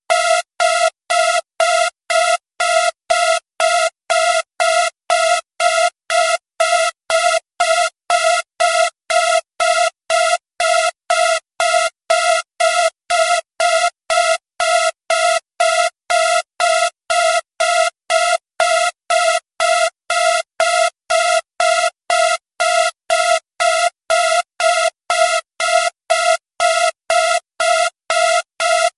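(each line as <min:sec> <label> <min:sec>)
0:00.0 Loud, high-pitched, repeating digital alarm tones. 0:29.0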